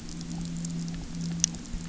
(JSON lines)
{"label": "anthrophony, boat engine", "recorder": "SoundTrap 300"}